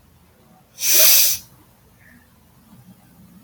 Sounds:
Sniff